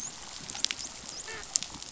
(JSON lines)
{"label": "biophony, dolphin", "recorder": "SoundTrap 500"}